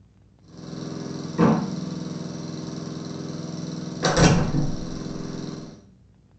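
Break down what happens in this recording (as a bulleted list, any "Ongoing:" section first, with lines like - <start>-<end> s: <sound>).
Ongoing:
- 0.35-5.88 s: you can hear a quiet engine throughout, fading in and fading out
Other sounds:
- 1.35-1.61 s: there is slamming
- 4.0-4.88 s: the sound of a door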